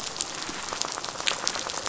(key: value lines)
label: biophony, rattle
recorder: SoundTrap 500